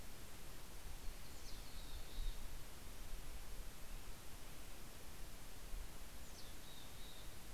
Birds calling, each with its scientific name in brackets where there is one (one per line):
Mountain Chickadee (Poecile gambeli)